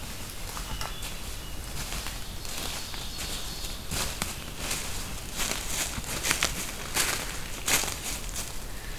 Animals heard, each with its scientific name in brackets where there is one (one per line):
Ovenbird (Seiurus aurocapilla)
Hermit Thrush (Catharus guttatus)